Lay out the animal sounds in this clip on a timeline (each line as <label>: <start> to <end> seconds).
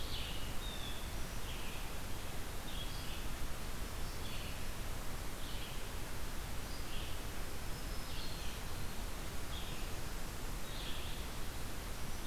Red-eyed Vireo (Vireo olivaceus): 0.0 to 12.3 seconds
Blue Jay (Cyanocitta cristata): 0.5 to 1.2 seconds
Black-throated Green Warbler (Setophaga virens): 7.4 to 8.8 seconds